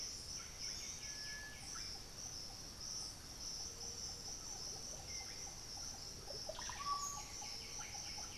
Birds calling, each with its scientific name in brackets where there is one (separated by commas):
unidentified bird, White-winged Becard (Pachyramphus polychopterus), Russet-backed Oropendola (Psarocolius angustifrons)